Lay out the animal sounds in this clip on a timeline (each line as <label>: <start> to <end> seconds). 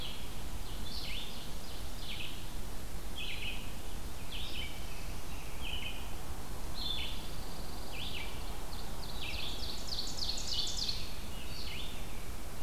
Red-eyed Vireo (Vireo olivaceus): 0.0 to 12.6 seconds
Ovenbird (Seiurus aurocapilla): 0.4 to 2.4 seconds
Black-throated Blue Warbler (Setophaga caerulescens): 4.1 to 5.6 seconds
Pine Warbler (Setophaga pinus): 6.9 to 8.4 seconds
Ovenbird (Seiurus aurocapilla): 8.4 to 11.2 seconds
American Robin (Turdus migratorius): 10.7 to 12.4 seconds